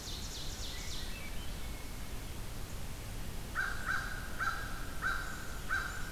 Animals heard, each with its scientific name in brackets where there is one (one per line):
American Crow (Corvus brachyrhynchos)
Swainson's Thrush (Catharus ustulatus)
Ovenbird (Seiurus aurocapilla)